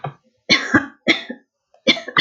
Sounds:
Cough